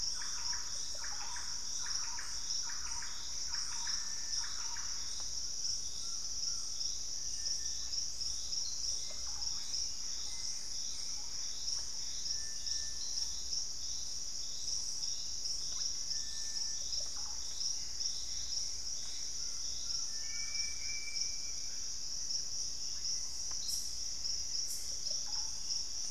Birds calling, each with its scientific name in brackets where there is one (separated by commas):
Russet-backed Oropendola (Psarocolius angustifrons), Hauxwell's Thrush (Turdus hauxwelli), Purple-throated Fruitcrow (Querula purpurata), Thrush-like Wren (Campylorhynchus turdinus), Screaming Piha (Lipaugus vociferans), Collared Trogon (Trogon collaris), Gray Antbird (Cercomacra cinerascens), Ringed Woodpecker (Celeus torquatus)